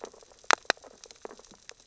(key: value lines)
label: biophony, sea urchins (Echinidae)
recorder: SoundTrap 600 or HydroMoth